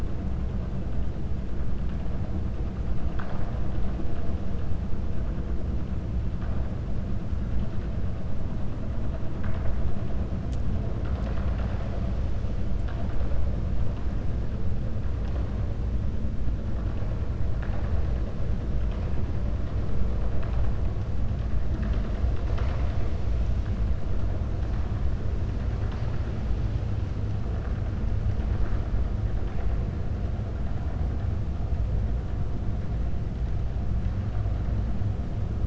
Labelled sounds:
3.0	3.6	vessel noise, 0.59 to 5.2 kHz

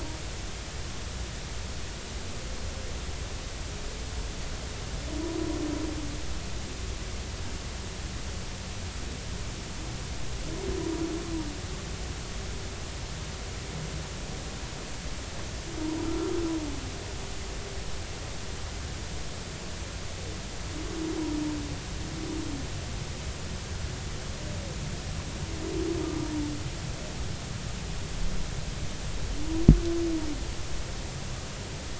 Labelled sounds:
16.0	16.3	humpback whale, 1.2 to 1.4 kHz

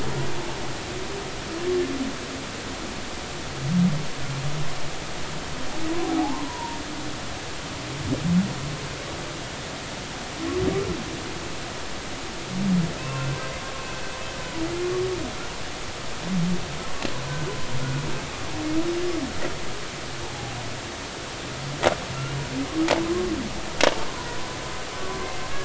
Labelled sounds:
6.0	6.8	humpback whale, 0.80 to 1.1 kHz
13.0	13.4	humpback whale, 0.99 to 2.8 kHz
20.2	20.6	humpback whale, 0.80 to 0.96 kHz
23.0	23.3	humpback whale, 0.96 to 1.1 kHz
24.1	24.4	humpback whale, 0.93 to 1.1 kHz

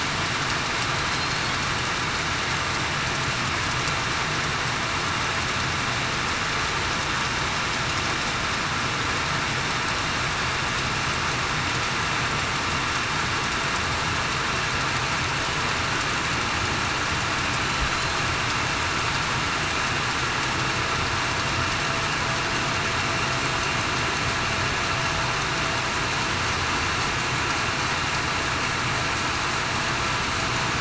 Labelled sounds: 1.1	1.5	killer whale, southern resident, 4.1 to 4.4 kHz

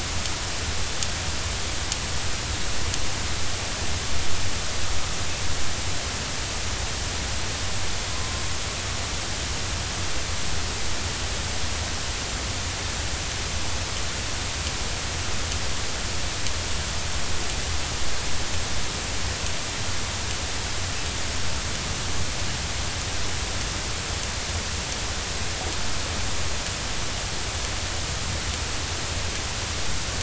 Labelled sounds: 8.1	8.4	killer whale, northern resident, 0.99 to 1.1 kHz

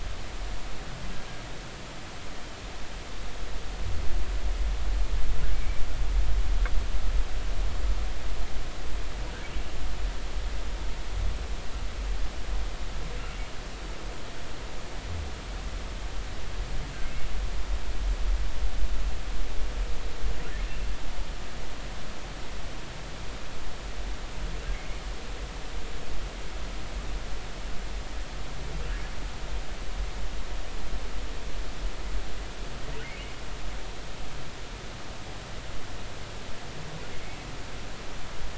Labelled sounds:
5.5	5.8	humpback whale, 2.2 to 2.4 kHz

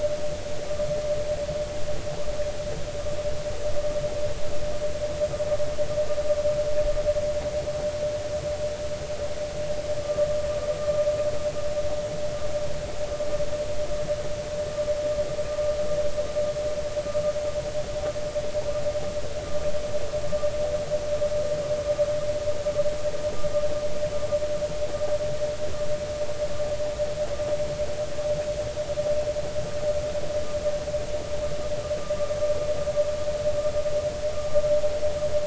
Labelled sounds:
10.0	10.3	vessel noise, 1.1 to 1.2 kHz

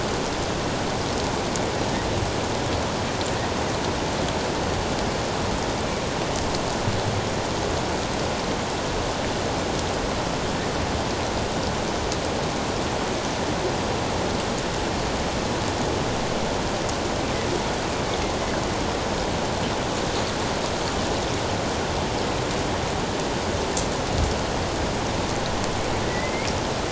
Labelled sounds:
26.1	26.5	killer whale, northern resident, A clan, AA subclan, A04 pod, 1.9 to 2.4 kHz

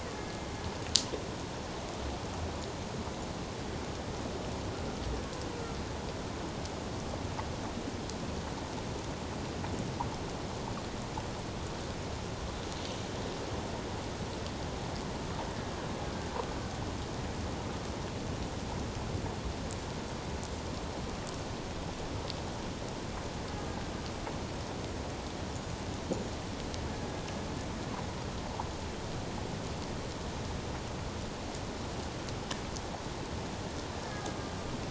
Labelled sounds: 0.1	0.4	killer whale, Bigg's (transient), 1.7 to 1.8 kHz
34.1	34.4	killer whale, Bigg's (transient), 1.2 to 1.7 kHz

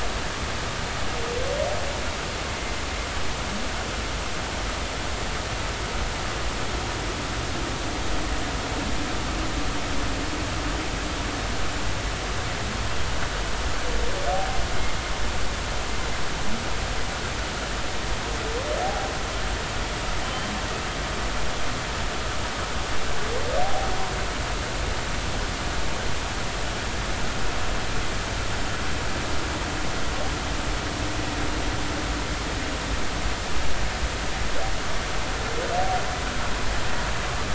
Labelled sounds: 18.8	19.1	humpback whale, 0.80 to 0.86 kHz
20.2	20.5	humpback whale, 3.0 to 3.1 kHz
23.6	23.9	humpback whale, 0.80 to 0.83 kHz

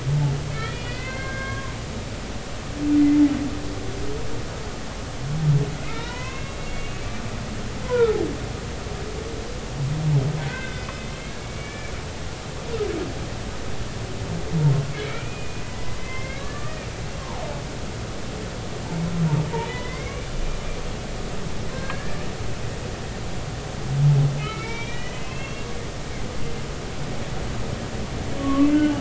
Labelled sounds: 0.5	1.7	humpback whale, 0.99 to 4.3 kHz
5.8	7.0	humpback whale, 0.90 to 4.0 kHz
7.8	8.2	humpback whale, 0.90 to 1.5 kHz
10.5	10.9	humpback whale, 1.4 to 2.1 kHz
11.4	11.9	humpback whale, 1.7 to 2.4 kHz
14.9	17.4	humpback whale, 0.80 to 2.7 kHz
19.6	20.3	humpback whale, 1.9 to 3.6 kHz
21.7	22.2	humpback whale, 1.5 to 1.8 kHz
24.4	25.7	humpback whale, 1.2 to 3.9 kHz
28.4	28.9	humpback whale, 1.0 to 3.1 kHz

